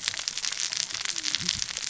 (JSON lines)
{"label": "biophony, cascading saw", "recorder": "SoundTrap 600 or HydroMoth"}